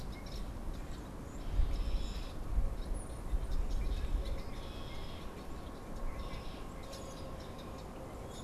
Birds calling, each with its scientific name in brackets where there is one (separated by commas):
Common Grackle (Quiscalus quiscula), Red-winged Blackbird (Agelaius phoeniceus), Brown-headed Cowbird (Molothrus ater)